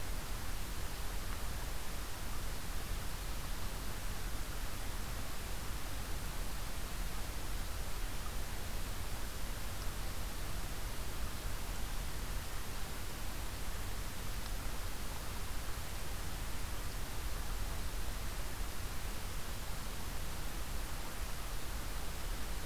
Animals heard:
forest ambience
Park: Acadia National Park